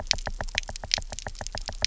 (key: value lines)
label: biophony, knock
recorder: SoundTrap 300